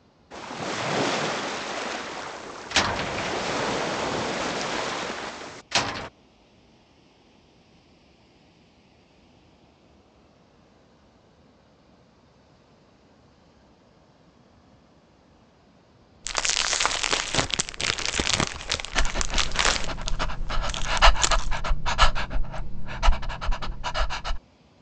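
At 0.3 seconds, you can hear waves. Over it, at 2.7 seconds, a door slams. Then, at 16.2 seconds, crumpling is heard. While that goes on, at 18.9 seconds, a dog can be heard. A quiet noise continues about 30 decibels below the sounds.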